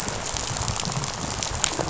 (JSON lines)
{"label": "biophony, rattle", "recorder": "SoundTrap 500"}